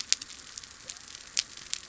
{"label": "biophony", "recorder": "SoundTrap 300"}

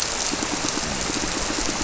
{"label": "biophony, squirrelfish (Holocentrus)", "recorder": "SoundTrap 300"}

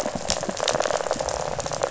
{"label": "biophony, rattle", "recorder": "SoundTrap 500"}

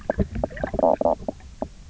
{"label": "biophony, knock croak", "recorder": "SoundTrap 300"}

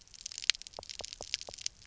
{"label": "biophony, knock", "recorder": "SoundTrap 300"}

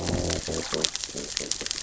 {"label": "biophony, growl", "recorder": "SoundTrap 600 or HydroMoth"}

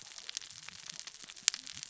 {"label": "biophony, cascading saw", "recorder": "SoundTrap 600 or HydroMoth"}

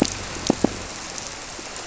{"label": "biophony", "recorder": "SoundTrap 300"}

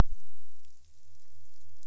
{"label": "biophony", "recorder": "SoundTrap 300"}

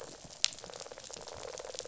{"label": "biophony, rattle response", "recorder": "SoundTrap 500"}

